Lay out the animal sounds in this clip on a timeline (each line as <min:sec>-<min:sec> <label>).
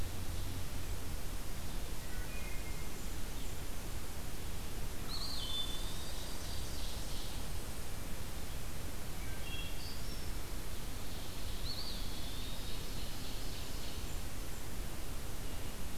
0:02.1-0:03.1 Wood Thrush (Hylocichla mustelina)
0:04.9-0:05.8 Eastern Wood-Pewee (Contopus virens)
0:05.0-0:07.9 Red Squirrel (Tamiasciurus hudsonicus)
0:05.2-0:07.7 Ovenbird (Seiurus aurocapilla)
0:09.2-0:10.2 Wood Thrush (Hylocichla mustelina)
0:11.3-0:12.8 Eastern Wood-Pewee (Contopus virens)
0:11.5-0:14.3 Ovenbird (Seiurus aurocapilla)